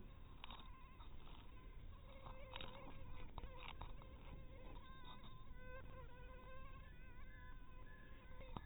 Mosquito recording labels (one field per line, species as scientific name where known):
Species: mosquito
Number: one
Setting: cup